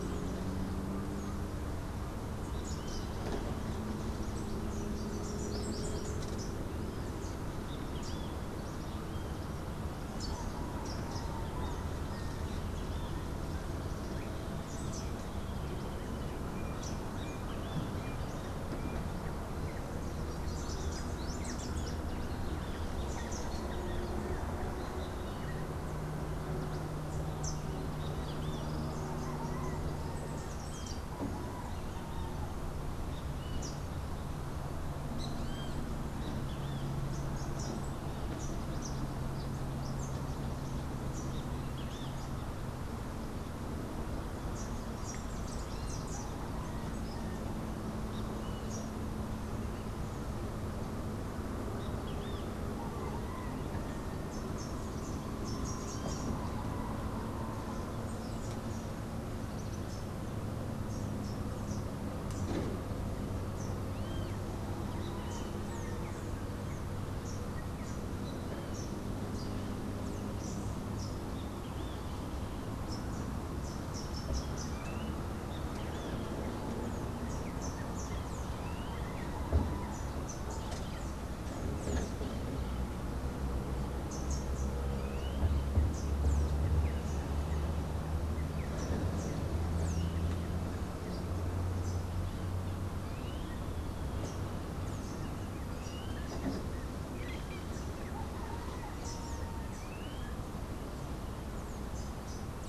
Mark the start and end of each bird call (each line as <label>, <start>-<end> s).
Rufous-capped Warbler (Basileuterus rufifrons), 2.5-3.3 s
Rufous-capped Warbler (Basileuterus rufifrons), 4.8-11.3 s
Great Kiskadee (Pitangus sulphuratus), 7.4-8.6 s
Rufous-capped Warbler (Basileuterus rufifrons), 14.3-17.3 s
Great Kiskadee (Pitangus sulphuratus), 16.9-18.5 s
Rufous-capped Warbler (Basileuterus rufifrons), 20.2-23.7 s
Great Kiskadee (Pitangus sulphuratus), 27.8-28.7 s
Great Kiskadee (Pitangus sulphuratus), 30.6-37.1 s
Rufous-capped Warbler (Basileuterus rufifrons), 36.8-41.4 s
Great Kiskadee (Pitangus sulphuratus), 41.6-42.4 s
Rufous-capped Warbler (Basileuterus rufifrons), 44.5-46.5 s
Great Kiskadee (Pitangus sulphuratus), 51.9-52.6 s
Rufous-capped Warbler (Basileuterus rufifrons), 54.2-56.4 s
Rufous-capped Warbler (Basileuterus rufifrons), 57.9-62.9 s
Great Kiskadee (Pitangus sulphuratus), 63.9-65.6 s
Rufous-naped Wren (Campylorhynchus rufinucha), 65.3-68.2 s
Rufous-capped Warbler (Basileuterus rufifrons), 70.4-85.0 s
Clay-colored Thrush (Turdus grayi), 74.7-79.5 s
Rufous-capped Warbler (Basileuterus rufifrons), 85.8-90.4 s
Clay-colored Thrush (Turdus grayi), 92.8-100.5 s